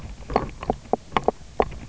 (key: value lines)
label: biophony
recorder: SoundTrap 300